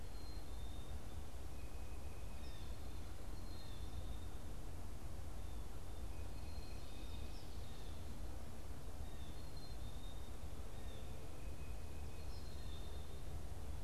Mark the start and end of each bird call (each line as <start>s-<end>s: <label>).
0.0s-13.8s: Black-capped Chickadee (Poecile atricapillus)
2.3s-2.8s: Blue Jay (Cyanocitta cristata)
7.5s-9.5s: Blue Jay (Cyanocitta cristata)